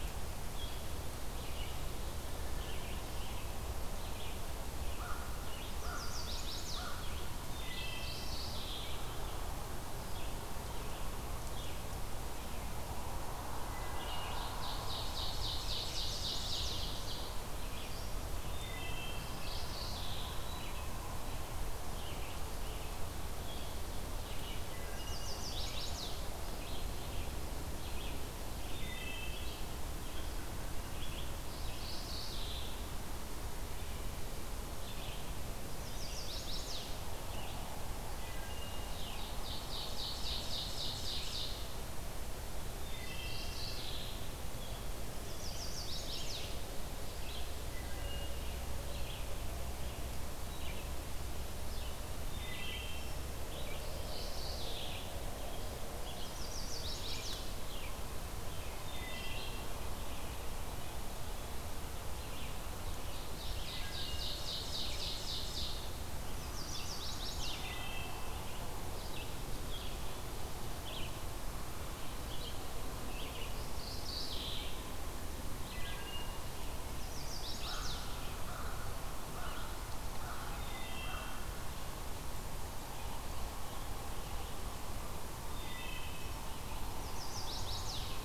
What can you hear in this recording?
Red-eyed Vireo, American Crow, Chestnut-sided Warbler, Wood Thrush, Mourning Warbler, Ovenbird